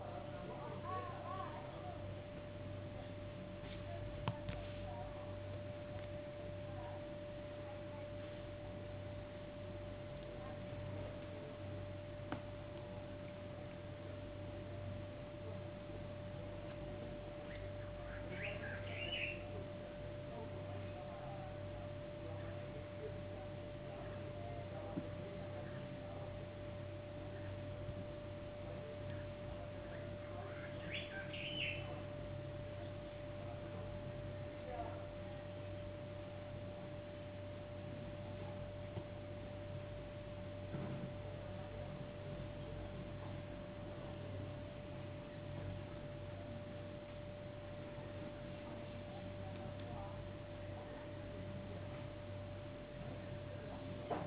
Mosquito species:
no mosquito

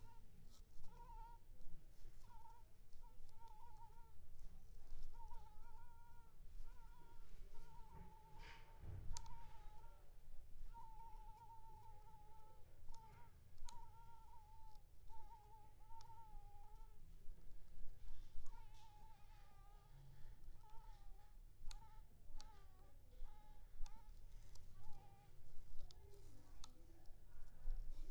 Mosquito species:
Anopheles squamosus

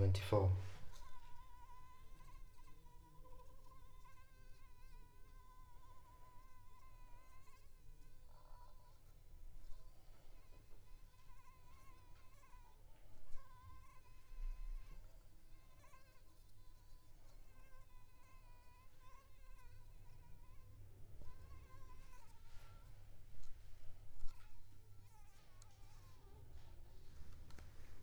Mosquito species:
Anopheles arabiensis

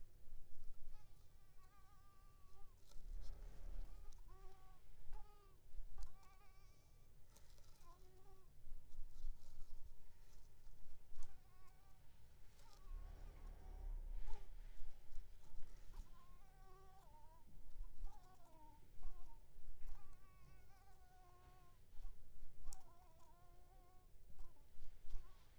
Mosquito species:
Anopheles coustani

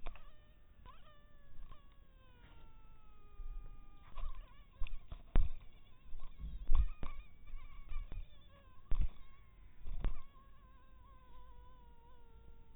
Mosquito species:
mosquito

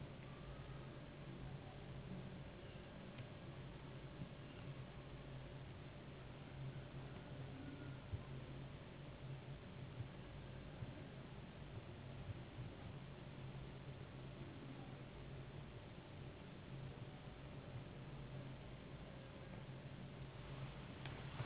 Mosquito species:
Anopheles gambiae s.s.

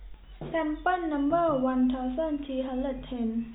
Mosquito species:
no mosquito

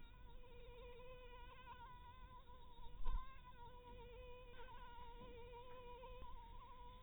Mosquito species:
Anopheles harrisoni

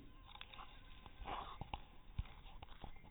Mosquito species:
mosquito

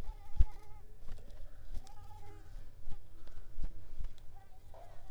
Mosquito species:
mosquito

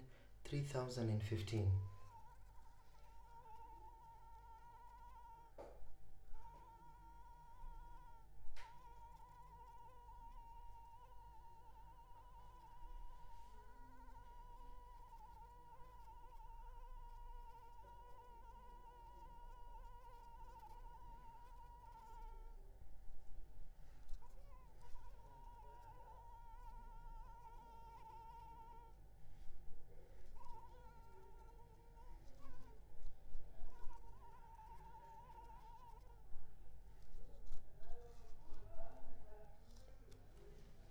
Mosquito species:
Anopheles arabiensis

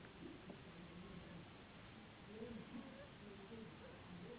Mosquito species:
Anopheles gambiae s.s.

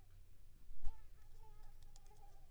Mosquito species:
Anopheles squamosus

